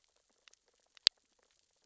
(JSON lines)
{"label": "biophony, sea urchins (Echinidae)", "recorder": "SoundTrap 600 or HydroMoth"}